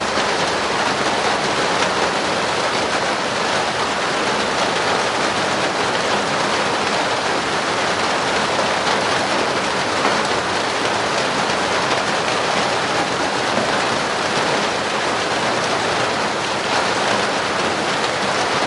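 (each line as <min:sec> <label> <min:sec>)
0:00.0 Heavy rain pouring continuously onto a metal roof. 0:18.7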